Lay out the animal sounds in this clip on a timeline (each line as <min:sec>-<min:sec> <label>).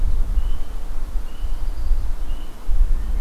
0:01.1-0:02.1 Red-winged Blackbird (Agelaius phoeniceus)